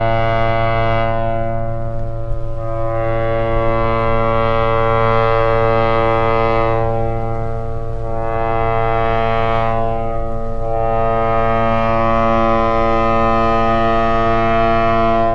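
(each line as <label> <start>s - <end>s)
A ship horn sounds continuously, rising and falling in volume several times. 0.0s - 15.3s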